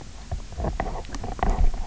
{"label": "biophony, knock croak", "recorder": "SoundTrap 300"}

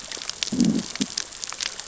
{"label": "biophony, growl", "recorder": "SoundTrap 600 or HydroMoth"}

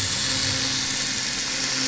{"label": "anthrophony, boat engine", "recorder": "SoundTrap 500"}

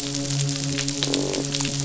{"label": "biophony, midshipman", "recorder": "SoundTrap 500"}
{"label": "biophony, croak", "recorder": "SoundTrap 500"}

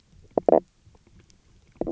{"label": "biophony, knock croak", "recorder": "SoundTrap 300"}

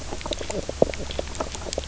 {"label": "biophony, knock croak", "recorder": "SoundTrap 300"}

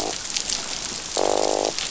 {"label": "biophony, croak", "recorder": "SoundTrap 500"}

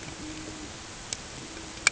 {"label": "ambient", "recorder": "HydroMoth"}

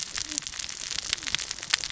{"label": "biophony, cascading saw", "recorder": "SoundTrap 600 or HydroMoth"}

